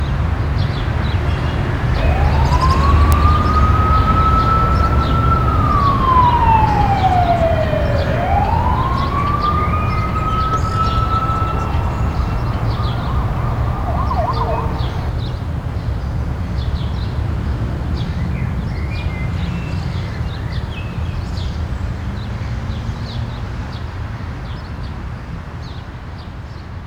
Are birds chirping?
yes